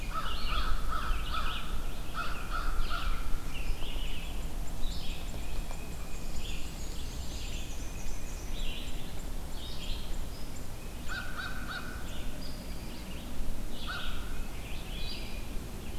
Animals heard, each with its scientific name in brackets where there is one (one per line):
American Crow (Corvus brachyrhynchos)
Pine Warbler (Setophaga pinus)
Tufted Titmouse (Baeolophus bicolor)
Red-eyed Vireo (Vireo olivaceus)
Black-and-white Warbler (Mniotilta varia)